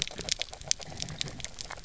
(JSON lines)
{"label": "biophony, grazing", "recorder": "SoundTrap 300"}